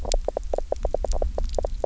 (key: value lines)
label: biophony, knock croak
recorder: SoundTrap 300